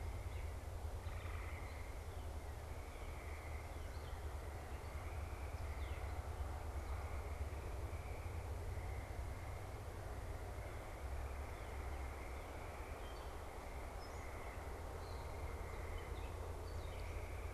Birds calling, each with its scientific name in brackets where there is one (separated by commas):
unidentified bird, Gray Catbird (Dumetella carolinensis)